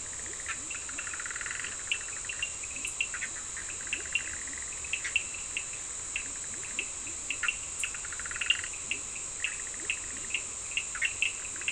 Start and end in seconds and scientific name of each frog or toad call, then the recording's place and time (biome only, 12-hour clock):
0.0	5.3	Boana bischoffi
0.0	11.7	Sphaenorhynchus surdus
0.1	1.3	Leptodactylus latrans
2.8	4.8	Leptodactylus latrans
5.9	7.4	Leptodactylus latrans
7.3	11.7	Boana bischoffi
9.6	10.8	Leptodactylus latrans
Atlantic Forest, 10:30pm